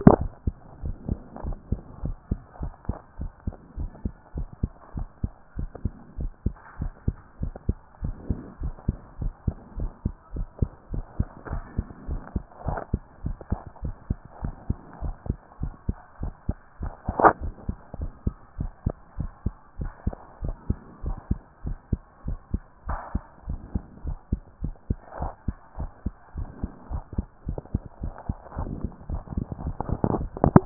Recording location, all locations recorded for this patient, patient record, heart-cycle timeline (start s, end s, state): tricuspid valve (TV)
aortic valve (AV)+tricuspid valve (TV)+mitral valve (MV)
#Age: Child
#Sex: Male
#Height: 124.0 cm
#Weight: 44.4 kg
#Pregnancy status: False
#Murmur: Absent
#Murmur locations: nan
#Most audible location: nan
#Systolic murmur timing: nan
#Systolic murmur shape: nan
#Systolic murmur grading: nan
#Systolic murmur pitch: nan
#Systolic murmur quality: nan
#Diastolic murmur timing: nan
#Diastolic murmur shape: nan
#Diastolic murmur grading: nan
#Diastolic murmur pitch: nan
#Diastolic murmur quality: nan
#Outcome: Abnormal
#Campaign: 2014 screening campaign
0.00	0.68	unannotated
0.68	0.82	diastole
0.82	0.96	S1
0.96	1.08	systole
1.08	1.18	S2
1.18	1.44	diastole
1.44	1.56	S1
1.56	1.70	systole
1.70	1.80	S2
1.80	2.04	diastole
2.04	2.16	S1
2.16	2.30	systole
2.30	2.40	S2
2.40	2.60	diastole
2.60	2.72	S1
2.72	2.88	systole
2.88	2.96	S2
2.96	3.20	diastole
3.20	3.30	S1
3.30	3.46	systole
3.46	3.54	S2
3.54	3.78	diastole
3.78	3.90	S1
3.90	4.04	systole
4.04	4.12	S2
4.12	4.36	diastole
4.36	4.48	S1
4.48	4.62	systole
4.62	4.70	S2
4.70	4.96	diastole
4.96	5.08	S1
5.08	5.22	systole
5.22	5.32	S2
5.32	5.58	diastole
5.58	5.70	S1
5.70	5.84	systole
5.84	5.92	S2
5.92	6.18	diastole
6.18	6.32	S1
6.32	6.44	systole
6.44	6.54	S2
6.54	6.80	diastole
6.80	6.92	S1
6.92	7.06	systole
7.06	7.16	S2
7.16	7.40	diastole
7.40	7.54	S1
7.54	7.68	systole
7.68	7.76	S2
7.76	8.02	diastole
8.02	8.16	S1
8.16	8.28	systole
8.28	8.38	S2
8.38	8.62	diastole
8.62	8.74	S1
8.74	8.86	systole
8.86	8.96	S2
8.96	9.20	diastole
9.20	9.32	S1
9.32	9.46	systole
9.46	9.56	S2
9.56	9.78	diastole
9.78	9.90	S1
9.90	10.04	systole
10.04	10.14	S2
10.14	10.34	diastole
10.34	10.48	S1
10.48	10.60	systole
10.60	10.70	S2
10.70	10.92	diastole
10.92	11.04	S1
11.04	11.18	systole
11.18	11.28	S2
11.28	11.50	diastole
11.50	11.62	S1
11.62	11.76	systole
11.76	11.86	S2
11.86	12.08	diastole
12.08	12.20	S1
12.20	12.34	systole
12.34	12.44	S2
12.44	12.66	diastole
12.66	12.78	S1
12.78	12.92	systole
12.92	13.02	S2
13.02	13.24	diastole
13.24	13.36	S1
13.36	13.50	systole
13.50	13.60	S2
13.60	13.82	diastole
13.82	13.94	S1
13.94	14.08	systole
14.08	14.18	S2
14.18	14.42	diastole
14.42	14.54	S1
14.54	14.68	systole
14.68	14.78	S2
14.78	15.02	diastole
15.02	15.14	S1
15.14	15.28	systole
15.28	15.38	S2
15.38	15.62	diastole
15.62	15.72	S1
15.72	15.88	systole
15.88	15.96	S2
15.96	16.22	diastole
16.22	16.34	S1
16.34	16.48	systole
16.48	16.56	S2
16.56	16.80	diastole
16.80	16.92	S1
16.92	17.08	systole
17.08	17.16	S2
17.16	17.42	diastole
17.42	17.52	S1
17.52	17.68	systole
17.68	17.76	S2
17.76	17.98	diastole
17.98	18.10	S1
18.10	18.24	systole
18.24	18.34	S2
18.34	18.58	diastole
18.58	18.72	S1
18.72	18.84	systole
18.84	18.94	S2
18.94	19.18	diastole
19.18	19.30	S1
19.30	19.44	systole
19.44	19.54	S2
19.54	19.80	diastole
19.80	19.92	S1
19.92	20.06	systole
20.06	20.14	S2
20.14	20.42	diastole
20.42	20.56	S1
20.56	20.68	systole
20.68	20.78	S2
20.78	21.04	diastole
21.04	21.18	S1
21.18	21.30	systole
21.30	21.38	S2
21.38	21.64	diastole
21.64	21.78	S1
21.78	21.90	systole
21.90	22.00	S2
22.00	22.26	diastole
22.26	22.38	S1
22.38	22.52	systole
22.52	22.62	S2
22.62	22.88	diastole
22.88	23.00	S1
23.00	23.14	systole
23.14	23.22	S2
23.22	23.48	diastole
23.48	23.60	S1
23.60	23.74	systole
23.74	23.82	S2
23.82	24.04	diastole
24.04	24.18	S1
24.18	24.30	systole
24.30	24.40	S2
24.40	24.62	diastole
24.62	24.74	S1
24.74	24.88	systole
24.88	24.98	S2
24.98	25.20	diastole
25.20	25.32	S1
25.32	25.46	systole
25.46	25.56	S2
25.56	25.78	diastole
25.78	25.90	S1
25.90	26.04	systole
26.04	26.14	S2
26.14	26.36	diastole
26.36	26.48	S1
26.48	26.62	systole
26.62	26.70	S2
26.70	26.90	diastole
26.90	27.02	S1
27.02	27.16	systole
27.16	27.26	S2
27.26	27.48	diastole
27.48	27.60	S1
27.60	27.72	systole
27.72	27.82	S2
27.82	28.02	diastole
28.02	28.14	S1
28.14	28.28	systole
28.28	28.38	S2
28.38	28.58	diastole
28.58	28.70	S1
28.70	28.82	systole
28.82	28.90	S2
28.90	29.10	diastole
29.10	30.66	unannotated